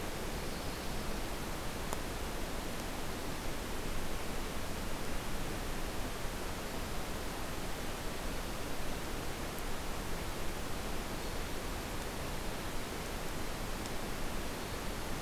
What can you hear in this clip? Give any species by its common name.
Hermit Thrush